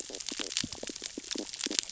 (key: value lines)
label: biophony, stridulation
recorder: SoundTrap 600 or HydroMoth